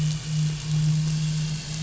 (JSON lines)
{"label": "anthrophony, boat engine", "recorder": "SoundTrap 500"}